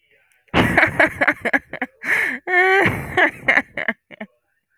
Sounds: Laughter